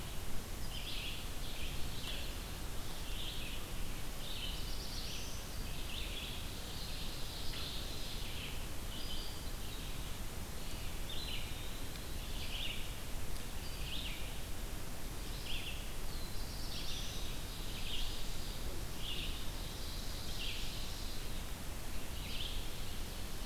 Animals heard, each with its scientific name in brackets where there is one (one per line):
Red-eyed Vireo (Vireo olivaceus)
Eastern Wood-Pewee (Contopus virens)
Ovenbird (Seiurus aurocapilla)
Black-throated Blue Warbler (Setophaga caerulescens)